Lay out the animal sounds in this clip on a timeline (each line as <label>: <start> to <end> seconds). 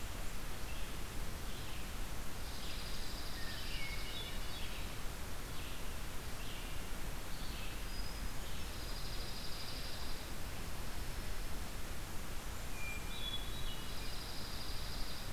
Red-eyed Vireo (Vireo olivaceus): 0.0 to 8.8 seconds
Blackburnian Warbler (Setophaga fusca): 2.0 to 3.3 seconds
Dark-eyed Junco (Junco hyemalis): 2.3 to 4.4 seconds
Hermit Thrush (Catharus guttatus): 3.2 to 4.6 seconds
Hermit Thrush (Catharus guttatus): 7.5 to 8.8 seconds
Dark-eyed Junco (Junco hyemalis): 8.6 to 12.0 seconds
Blackburnian Warbler (Setophaga fusca): 11.8 to 13.0 seconds
Hermit Thrush (Catharus guttatus): 12.6 to 14.0 seconds
Dark-eyed Junco (Junco hyemalis): 13.5 to 15.3 seconds